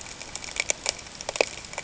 {"label": "ambient", "recorder": "HydroMoth"}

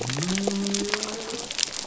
{"label": "biophony", "recorder": "SoundTrap 300"}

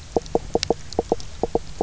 {"label": "biophony, knock croak", "recorder": "SoundTrap 300"}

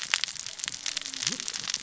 {"label": "biophony, cascading saw", "recorder": "SoundTrap 600 or HydroMoth"}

